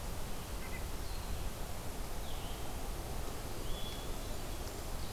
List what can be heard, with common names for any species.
Blue-headed Vireo, Hermit Thrush